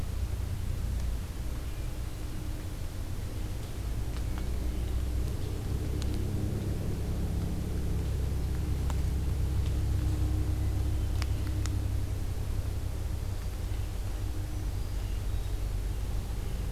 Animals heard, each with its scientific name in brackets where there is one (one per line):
Hermit Thrush (Catharus guttatus)